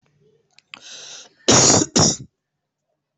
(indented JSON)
{
  "expert_labels": [
    {
      "quality": "good",
      "cough_type": "wet",
      "dyspnea": false,
      "wheezing": false,
      "stridor": false,
      "choking": false,
      "congestion": false,
      "nothing": true,
      "diagnosis": "healthy cough",
      "severity": "pseudocough/healthy cough"
    }
  ],
  "gender": "female",
  "respiratory_condition": false,
  "fever_muscle_pain": false,
  "status": "COVID-19"
}